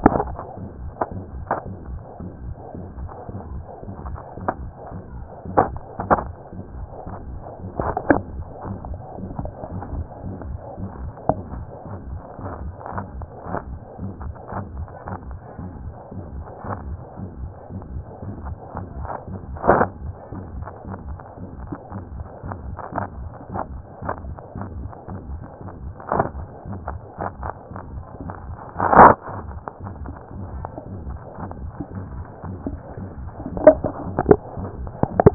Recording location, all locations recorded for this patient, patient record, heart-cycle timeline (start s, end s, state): tricuspid valve (TV)
aortic valve (AV)+pulmonary valve (PV)+tricuspid valve (TV)+mitral valve (MV)
#Age: Child
#Sex: Female
#Height: 144.0 cm
#Weight: 38.7 kg
#Pregnancy status: False
#Murmur: Present
#Murmur locations: aortic valve (AV)+mitral valve (MV)+pulmonary valve (PV)+tricuspid valve (TV)
#Most audible location: pulmonary valve (PV)
#Systolic murmur timing: Mid-systolic
#Systolic murmur shape: Diamond
#Systolic murmur grading: III/VI or higher
#Systolic murmur pitch: Medium
#Systolic murmur quality: Blowing
#Diastolic murmur timing: nan
#Diastolic murmur shape: nan
#Diastolic murmur grading: nan
#Diastolic murmur pitch: nan
#Diastolic murmur quality: nan
#Outcome: Abnormal
#Campaign: 2014 screening campaign
0.00	8.72	unannotated
8.72	8.78	S1
8.78	8.90	systole
8.90	9.00	S2
9.00	9.20	diastole
9.20	9.30	S1
9.30	9.40	systole
9.40	9.52	S2
9.52	9.74	diastole
9.74	9.82	S1
9.82	9.94	systole
9.94	10.04	S2
10.04	10.26	diastole
10.26	10.36	S1
10.36	10.48	systole
10.48	10.58	S2
10.58	10.80	diastole
10.80	10.90	S1
10.90	11.02	systole
11.02	11.12	S2
11.12	11.30	diastole
11.30	11.40	S1
11.40	11.54	systole
11.54	11.66	S2
11.66	11.92	diastole
11.92	11.98	S1
11.98	12.10	systole
12.10	12.20	S2
12.20	12.42	diastole
12.42	12.52	S1
12.52	12.64	systole
12.64	12.72	S2
12.72	12.94	diastole
12.94	13.04	S1
13.04	13.16	systole
13.16	13.28	S2
13.28	13.50	diastole
13.50	13.60	S1
13.60	13.70	systole
13.70	13.78	S2
13.78	14.00	diastole
14.00	14.12	S1
14.12	14.24	systole
14.24	14.34	S2
14.34	14.56	diastole
14.56	14.66	S1
14.66	14.76	systole
14.76	14.88	S2
14.88	15.08	diastole
15.08	15.18	S1
15.18	15.30	systole
15.30	15.38	S2
15.38	15.60	diastole
15.60	15.72	S1
15.72	15.84	systole
15.84	15.94	S2
15.94	16.16	diastole
16.16	16.26	S1
16.26	16.36	systole
16.36	16.46	S2
16.46	16.70	diastole
16.70	16.78	S1
16.78	16.88	systole
16.88	17.00	S2
17.00	17.22	diastole
17.22	17.30	S1
17.30	17.40	systole
17.40	17.52	S2
17.52	17.74	diastole
17.74	17.82	S1
17.82	17.94	systole
17.94	18.04	S2
18.04	18.24	diastole
18.24	18.34	S1
18.34	18.46	systole
18.46	18.56	S2
18.56	18.76	diastole
18.76	18.86	S1
18.86	18.98	systole
18.98	35.34	unannotated